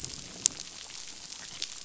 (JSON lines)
{"label": "biophony", "recorder": "SoundTrap 500"}